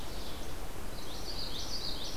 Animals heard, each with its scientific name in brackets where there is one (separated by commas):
Least Flycatcher (Empidonax minimus), Red-eyed Vireo (Vireo olivaceus), Common Yellowthroat (Geothlypis trichas)